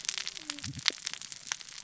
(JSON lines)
{"label": "biophony, cascading saw", "recorder": "SoundTrap 600 or HydroMoth"}